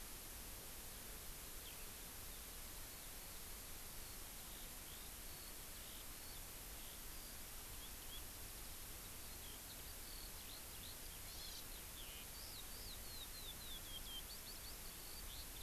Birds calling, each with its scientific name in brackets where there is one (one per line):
Hawaii Amakihi (Chlorodrepanis virens)
Eurasian Skylark (Alauda arvensis)